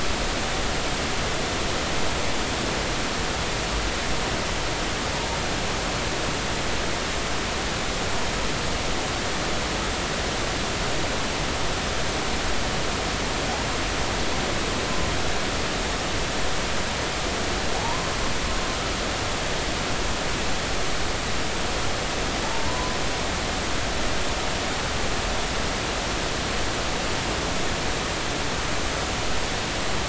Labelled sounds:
17.7	18.2	humpback whale, 0.80 to 1.1 kHz
22.7	23.0	humpback whale, 0.96 to 1.1 kHz
23.4	23.7	humpback whale, 0.83 to 0.96 kHz

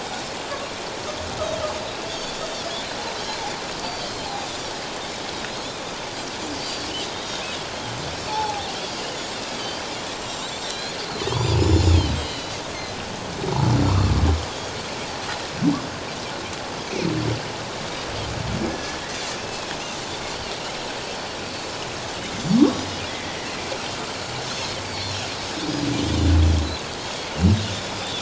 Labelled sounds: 2.4	2.7	Pacific white-sided dolphin, 3.3 to 3.7 kHz
3.8	4.1	Pacific white-sided dolphin, 4.4 to 4.7 kHz
6.6	7.5	Pacific white-sided dolphin, 3.6 to 4.8 kHz
8.2	8.5	humpback whale, 4.2 to 4.6 kHz
8.3	9.8	Pacific white-sided dolphin, 0.78 to 4.8 kHz
10.1	11.0	Pacific white-sided dolphin, 3.7 to 7.5 kHz
11.3	12.5	Pacific white-sided dolphin, 2.8 to 7.1 kHz
14.4	14.8	Pacific white-sided dolphin, 3.2 to 4.9 kHz
18.7	19.0	humpback whale, 1.6 to 1.8 kHz
19.4	19.7	Pacific white-sided dolphin, 2.4 to 2.8 kHz
22.6	22.8	humpback whale, 1.0 to 1.2 kHz
24.5	25.3	Pacific white-sided dolphin, 3.8 to 5.7 kHz
26.0	26.4	Pacific white-sided dolphin, 3.4 to 3.7 kHz
27.7	28.2	Pacific white-sided dolphin, 3.3 to 3.7 kHz

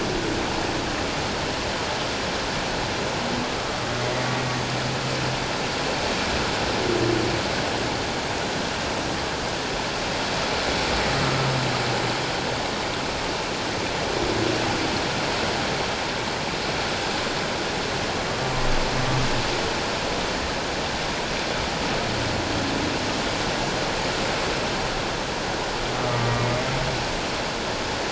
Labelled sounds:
25.9	26.4	humpback whale, 1.1 to 1.2 kHz

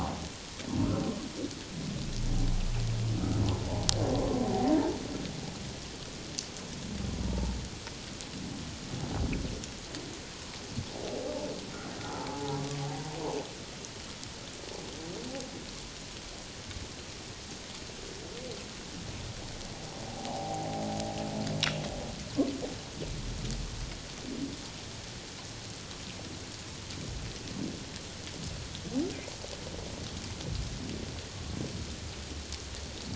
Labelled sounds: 3.5	3.8	humpback whale, 0.78 to 1.0 kHz
7.3	7.5	humpback whale, 0.81 to 0.97 kHz
12.3	12.6	humpback whale, 0.78 to 0.91 kHz
20.1	20.6	humpback whale, 0.78 to 0.97 kHz

